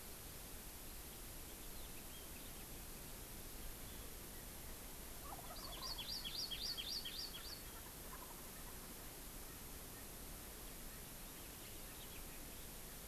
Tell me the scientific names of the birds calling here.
Meleagris gallopavo, Chlorodrepanis virens